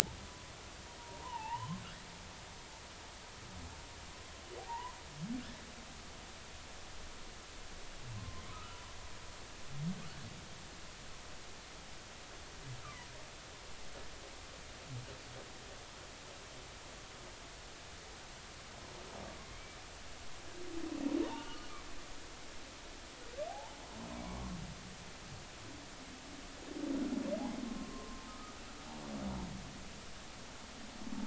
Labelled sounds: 1.0	1.8	humpback whale, 0.80 to 3.1 kHz
4.7	5.0	humpback whale, 0.80 to 2.0 kHz
8.2	8.8	humpback whale, 0.99 to 1.4 kHz
12.8	13.1	humpback whale, 0.93 to 1.4 kHz
21.2	21.7	humpback whale, 0.83 to 1.5 kHz
23.5	24.5	humpback whale, 0.80 to 1.2 kHz
27.7	28.5	humpback whale, 0.96 to 1.3 kHz

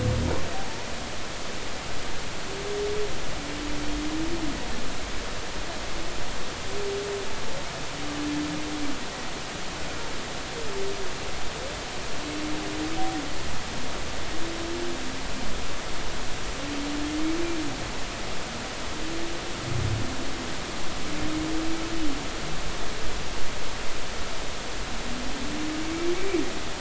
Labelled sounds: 0.5	0.8	humpback whale, 0.80 to 0.93 kHz
26.1	26.4	humpback whale, 2.1 to 2.4 kHz

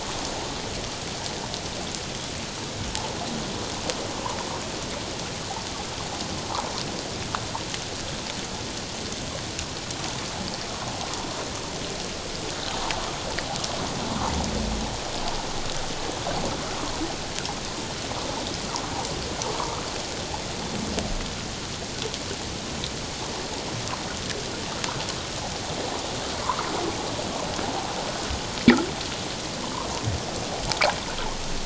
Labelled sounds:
19.5	19.8	water noise, 0.88 to 1.3 kHz

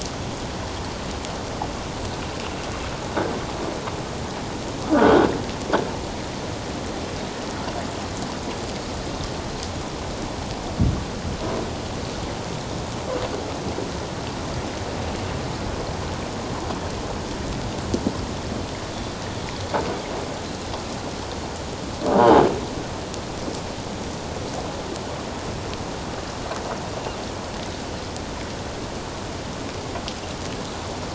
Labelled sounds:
4.9	5.3	croaking sound likely from a nearby submerged object, 1.3 to 1.6 kHz

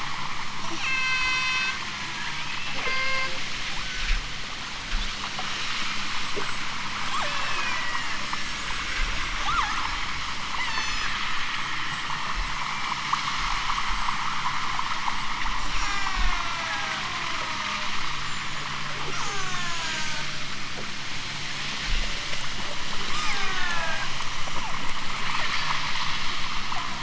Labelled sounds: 0.7	2.5	killer whale, southern Alaska resident, 0.64 to 8.0 kHz
2.8	3.4	killer whale, southern Alaska resident, 0.32 to 5.1 kHz
3.7	4.2	killer whale, southern Alaska resident, 0.50 to 3.6 kHz
7.1	7.9	killer whale, southern Alaska resident, 0.41 to 8.0 kHz
9.3	10.1	killer whale, southern Alaska resident, 0.46 to 8.0 kHz
10.6	11.1	killer whale, southern Alaska resident, 2.4 to 8.0 kHz
11.7	12.5	killer whale, southern Alaska resident, 2.6 to 6.0 kHz
15.7	17.9	killer whale, southern Alaska resident, 0.64 to 8.0 kHz
19.0	20.3	killer whale, southern Alaska resident, 0.41 to 8.0 kHz
23.1	24.1	killer whale, southern Alaska resident, 0.50 to 5.0 kHz
24.5	24.9	killer whale, southern Alaska resident, 0.23 to 1.7 kHz
25.3	26.0	killer whale, southern Alaska resident, 3.9 to 8.0 kHz

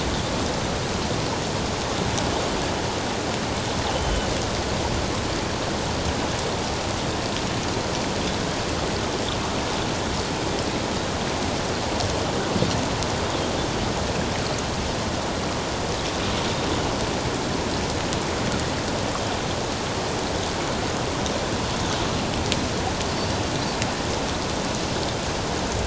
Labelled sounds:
3.9	4.3	Pacific white-sided dolphin, 2.8 to 3.1 kHz

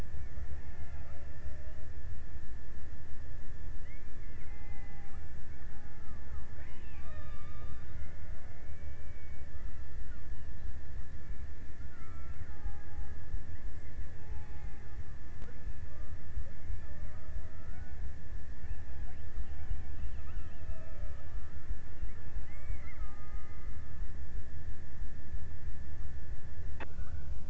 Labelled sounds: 0.0	2.4	killer whale, Bigg's (transient), 0.40 to 2.3 kHz
3.4	8.4	killer whale, Bigg's (transient), 0.34 to 3.1 kHz
11.3	15.1	killer whale, Bigg's (transient), 0.54 to 2.5 kHz
16.3	18.6	killer whale, Bigg's (transient), 0.48 to 2.0 kHz
19.9	21.4	killer whale, Bigg's (transient), 0.34 to 1.9 kHz
21.9	24.5	killer whale, Bigg's (transient), 0.31 to 2.8 kHz

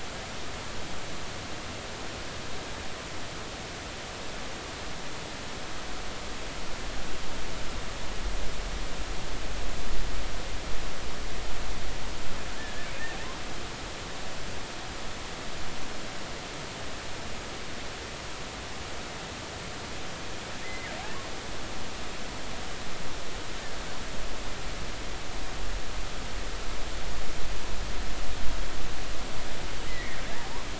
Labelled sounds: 12.6	12.9	killer whale, offshore, 1.6 to 1.9 kHz
20.6	20.9	killer whale, offshore, 1.8 to 2.1 kHz
29.9	30.2	killer whale, offshore, 1.8 to 2.3 kHz

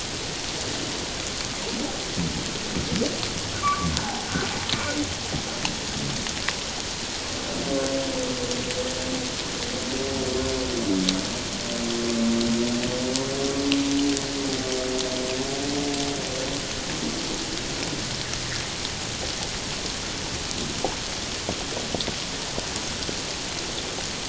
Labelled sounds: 3.6	4.3	humpback whale, 0.78 to 1.2 kHz

